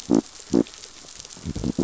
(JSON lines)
{"label": "biophony", "recorder": "SoundTrap 500"}